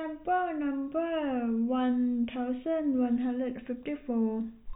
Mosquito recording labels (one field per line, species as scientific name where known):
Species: no mosquito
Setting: cup